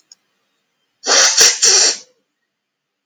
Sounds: Sniff